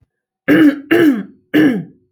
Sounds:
Throat clearing